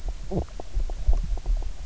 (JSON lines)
{"label": "biophony, knock croak", "recorder": "SoundTrap 300"}